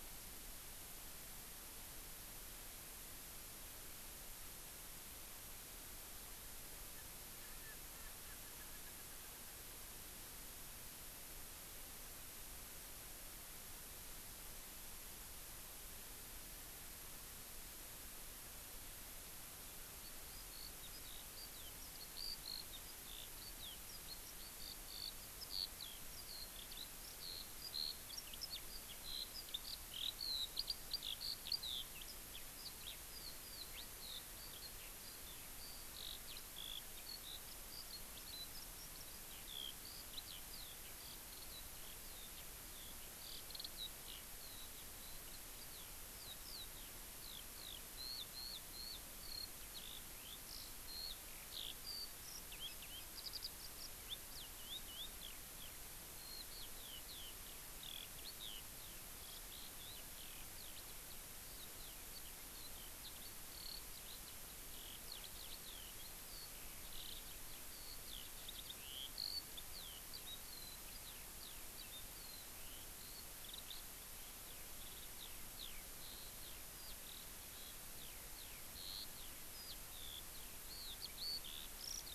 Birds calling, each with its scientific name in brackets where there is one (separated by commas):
Eurasian Skylark (Alauda arvensis), Erckel's Francolin (Pternistis erckelii)